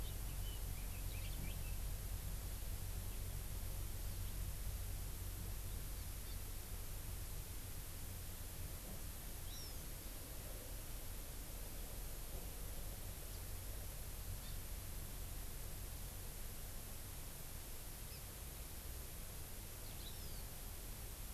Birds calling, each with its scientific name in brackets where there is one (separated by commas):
Hawaiian Hawk (Buteo solitarius), Red-billed Leiothrix (Leiothrix lutea)